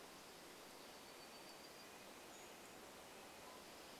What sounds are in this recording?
Dark-eyed Junco song, warbler song, Red-breasted Nuthatch song, Pacific-slope Flycatcher call